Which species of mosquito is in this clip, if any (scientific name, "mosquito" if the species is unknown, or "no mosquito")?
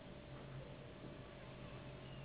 Anopheles gambiae s.s.